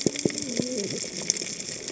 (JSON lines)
{"label": "biophony, cascading saw", "recorder": "HydroMoth"}